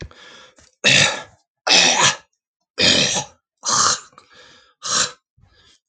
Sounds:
Throat clearing